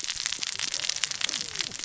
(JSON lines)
{"label": "biophony, cascading saw", "recorder": "SoundTrap 600 or HydroMoth"}